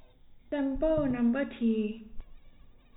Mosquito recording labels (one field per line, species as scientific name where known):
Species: no mosquito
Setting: cup